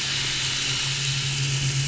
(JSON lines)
{"label": "anthrophony, boat engine", "recorder": "SoundTrap 500"}